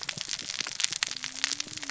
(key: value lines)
label: biophony, cascading saw
recorder: SoundTrap 600 or HydroMoth